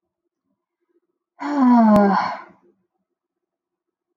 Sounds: Sigh